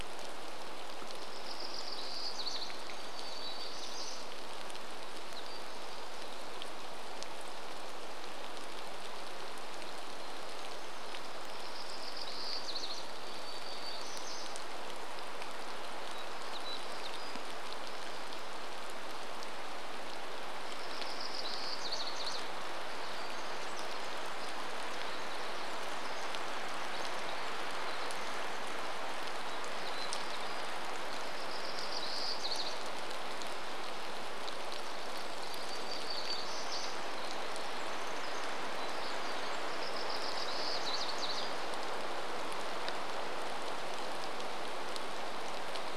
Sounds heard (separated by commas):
rain, Pacific Wren song, warbler song